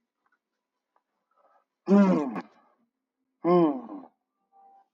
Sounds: Sigh